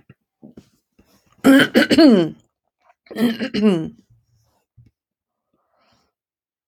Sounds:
Throat clearing